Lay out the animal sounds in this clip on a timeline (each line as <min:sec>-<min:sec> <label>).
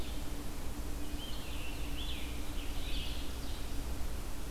0:00.0-0:04.5 Red-eyed Vireo (Vireo olivaceus)
0:02.3-0:04.0 Ovenbird (Seiurus aurocapilla)